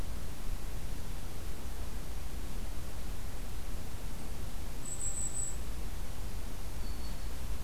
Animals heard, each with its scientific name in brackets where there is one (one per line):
Black-throated Green Warbler (Setophaga virens)
Golden-crowned Kinglet (Regulus satrapa)